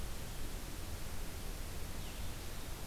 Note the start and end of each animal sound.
0.0s-2.9s: Blue-headed Vireo (Vireo solitarius)

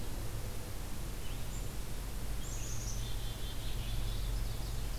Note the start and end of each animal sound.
0.0s-2.8s: Red-eyed Vireo (Vireo olivaceus)
2.2s-4.0s: Black-capped Chickadee (Poecile atricapillus)
3.8s-5.0s: Ovenbird (Seiurus aurocapilla)

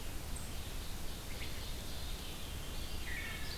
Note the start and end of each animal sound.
0.0s-3.6s: Red-eyed Vireo (Vireo olivaceus)
0.4s-2.4s: Ovenbird (Seiurus aurocapilla)
1.5s-3.3s: Veery (Catharus fuscescens)
2.8s-3.6s: Eastern Wood-Pewee (Contopus virens)
3.1s-3.6s: Wood Thrush (Hylocichla mustelina)

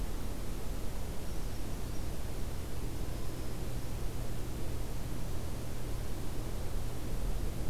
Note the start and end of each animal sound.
0.9s-2.1s: Brown Creeper (Certhia americana)
2.7s-4.1s: Black-throated Green Warbler (Setophaga virens)

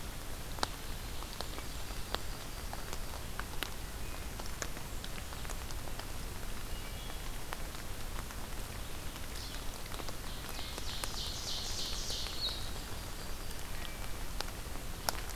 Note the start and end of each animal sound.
1.3s-3.0s: Yellow-rumped Warbler (Setophaga coronata)
6.5s-7.3s: Wood Thrush (Hylocichla mustelina)
9.2s-12.8s: Blue-headed Vireo (Vireo solitarius)
10.2s-12.4s: Ovenbird (Seiurus aurocapilla)
12.8s-13.7s: Yellow-rumped Warbler (Setophaga coronata)

